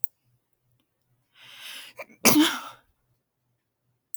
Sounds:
Sneeze